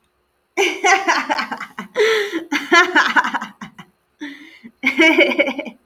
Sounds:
Laughter